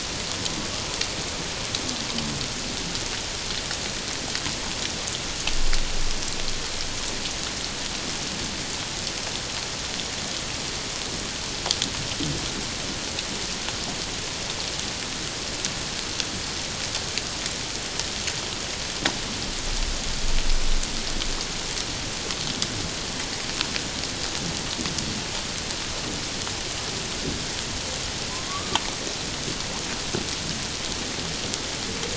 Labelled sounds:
28.3	28.8	killer whale, Bigg's (transient), 0.97 to 1.3 kHz

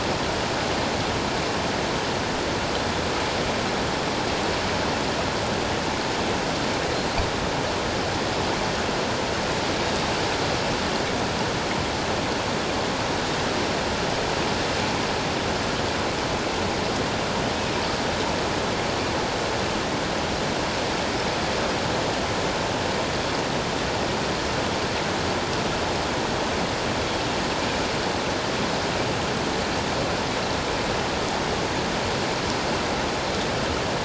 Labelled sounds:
13.1	13.4	Pacific white-sided dolphin, 3.6 to 3.8 kHz

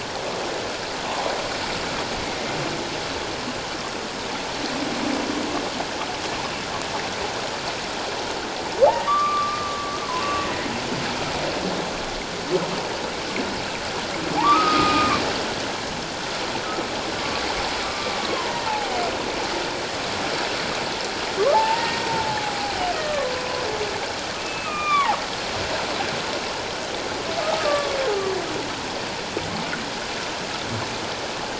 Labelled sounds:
9.1	10.5	humpback whale, 1.1 to 2.8 kHz
14.4	15.2	humpback whale, 0.78 to 2.5 kHz
17.2	18.6	humpback whale, 0.88 to 1.2 kHz
21.5	23.3	humpback whale, 0.78 to 1.9 kHz
24.4	25.2	humpback whale, 0.78 to 3.7 kHz
27.4	28.0	humpback whale, 1.1 to 1.3 kHz

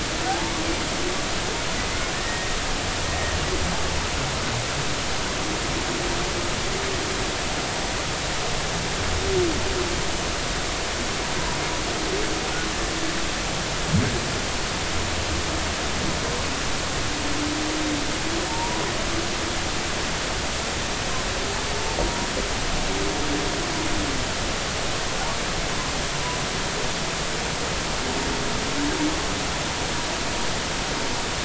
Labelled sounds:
0.3	0.5	humpback whale, 0.80 to 0.96 kHz
1.8	2.5	humpback whale, 1.7 to 2.2 kHz
18.5	18.8	humpback whale, 0.86 to 1.0 kHz
22.0	22.3	humpback whale, 0.93 to 0.99 kHz

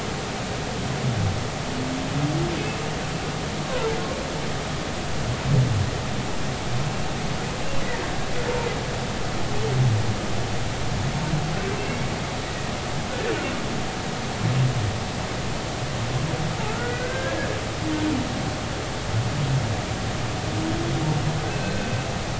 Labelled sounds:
7.8	8.1	humpback whale, 1.7 to 2.0 kHz
12.4	12.7	humpback whale, 1.8 to 2.0 kHz
16.7	18.2	humpback whale, 1.2 to 2.1 kHz
21.6	21.9	humpback whale, 1.5 to 1.6 kHz

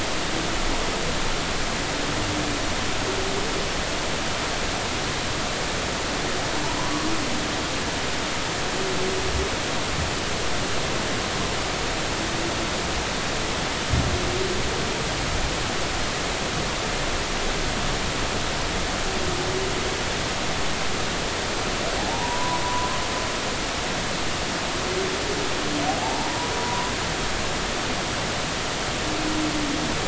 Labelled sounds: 22.1	22.9	humpback whale, 0.80 to 1.1 kHz
25.9	26.9	humpback whale, 0.80 to 1.1 kHz

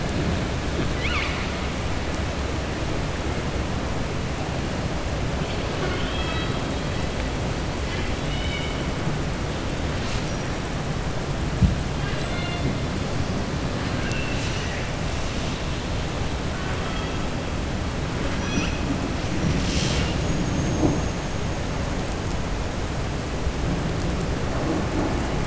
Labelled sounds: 0.9	1.5	killer whale, southern resident, 1.1 to 5.0 kHz
5.7	6.6	killer whale, southern resident, 0.39 to 4.6 kHz
11.9	12.7	killer whale, southern resident, 1.2 to 4.3 kHz

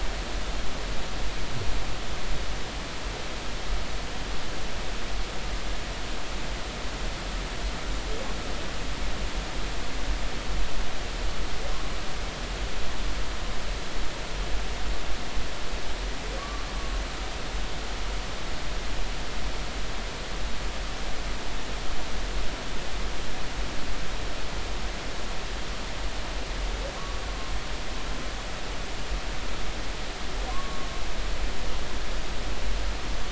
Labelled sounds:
16.4	16.7	humpback whale, 1.1 to 1.2 kHz
27.0	27.2	humpback whale, 1.1 to 1.2 kHz
30.5	30.9	humpback whale, 0.99 to 1.2 kHz

